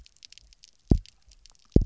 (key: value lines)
label: biophony, double pulse
recorder: SoundTrap 300